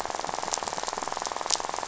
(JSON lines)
{"label": "biophony, rattle", "recorder": "SoundTrap 500"}